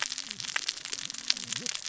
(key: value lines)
label: biophony, cascading saw
recorder: SoundTrap 600 or HydroMoth